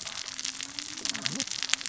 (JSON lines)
{"label": "biophony, cascading saw", "recorder": "SoundTrap 600 or HydroMoth"}